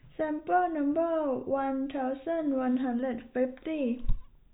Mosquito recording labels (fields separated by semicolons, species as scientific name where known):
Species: no mosquito; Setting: cup